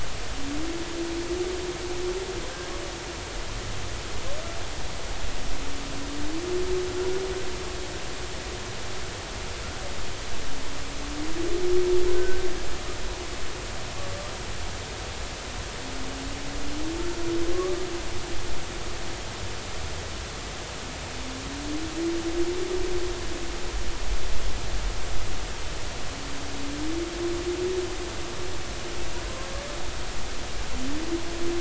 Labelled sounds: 12.1	12.4	humpback whale, 1.4 to 1.6 kHz

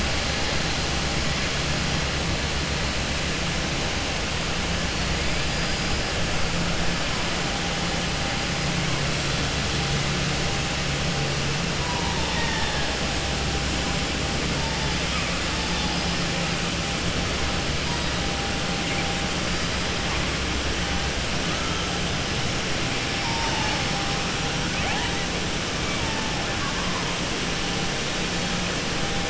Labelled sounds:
26.5	27.0	killer whale, southern resident, 0.88 to 1.7 kHz

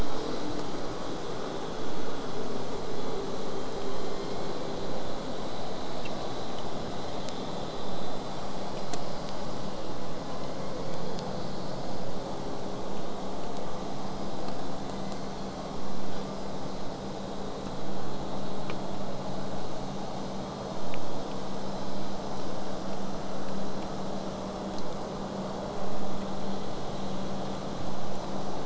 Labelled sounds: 14.8	15.6	killer whale, southern resident, J pod, 1.8 to 4.2 kHz

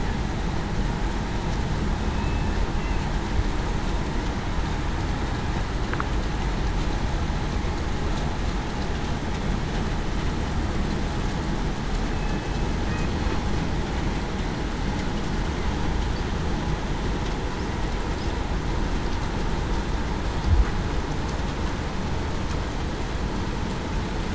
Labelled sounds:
2.1	2.6	killer whale, southern resident, 2.6 to 2.7 kHz
12.1	12.5	killer whale, southern resident, 2.55 to 2.62 kHz

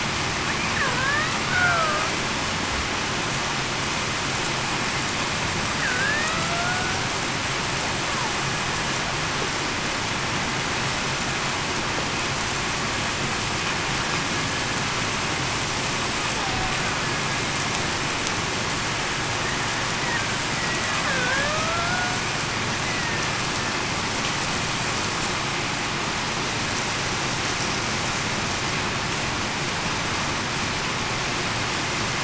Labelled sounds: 0.9	2.0	killer whale, Bigg's (transient), 0.58 to 2.0 kHz
5.8	6.8	killer whale, Bigg's (transient), 0.66 to 2.0 kHz
16.4	16.7	killer whale, Bigg's (transient), 0.73 to 0.87 kHz
20.6	21.5	killer whale, Bigg's (transient), 1.5 to 2.0 kHz
22.8	23.2	killer whale, Bigg's (transient), 1.8 to 2.1 kHz

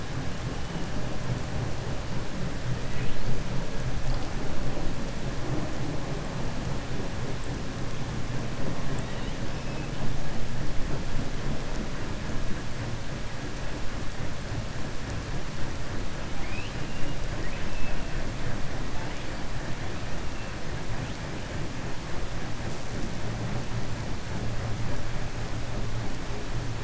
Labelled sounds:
16.3	16.8	killer whale, 2.0 to 5.0 kHz
17.3	18.0	killer whale, 1.5 to 3.5 kHz

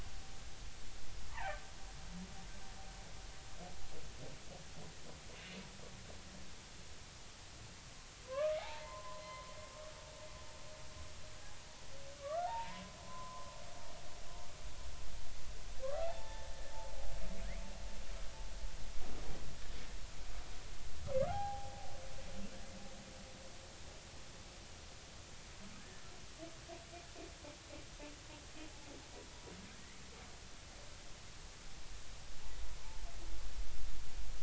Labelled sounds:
1.3	1.6	humpback whale, 0.80 to 2.4 kHz
8.2	9.5	humpback whale, 0.80 to 4.2 kHz
12.2	13.5	humpback whale, 0.80 to 1.5 kHz
15.9	16.5	humpback whale, 0.80 to 1.8 kHz
21.3	21.9	humpback whale, 0.80 to 0.90 kHz
25.8	26.1	humpback whale, 1.7 to 2.0 kHz

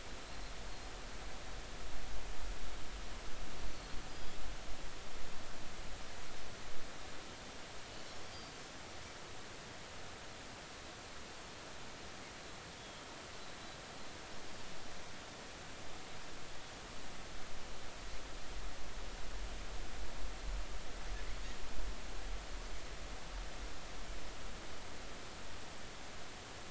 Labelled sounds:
3.6	4.0	Pacific white-sided dolphin, 4.2 to 4.5 kHz
8.3	8.6	Pacific white-sided dolphin, 4.6 to 4.9 kHz

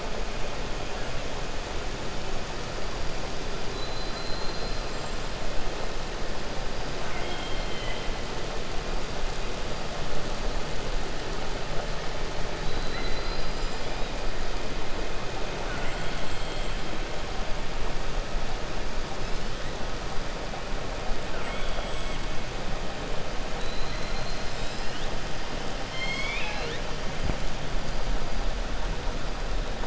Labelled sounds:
7.0	8.1	killer whale, 1.0 to 3.3 kHz
15.6	16.7	killer whale, 0.83 to 4.3 kHz
21.3	22.2	killer whale, 1.2 to 3.5 kHz
25.8	26.8	killer whale, 0.85 to 7.7 kHz

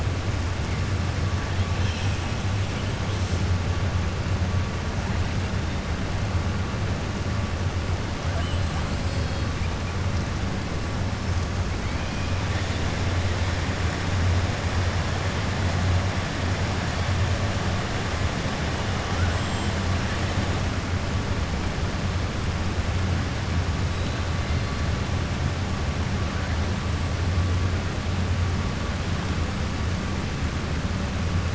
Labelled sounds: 9.0	9.5	killer whale, 3.3 to 5.2 kHz

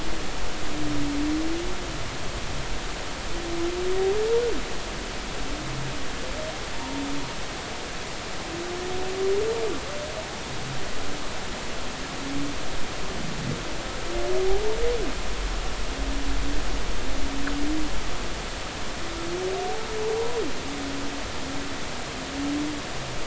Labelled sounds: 6.7	7.0	humpback whale, 0.90 to 1.1 kHz
20.2	20.4	humpback whale, 0.90 to 1.0 kHz

